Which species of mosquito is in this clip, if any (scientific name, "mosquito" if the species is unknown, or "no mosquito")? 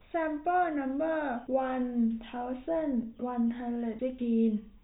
no mosquito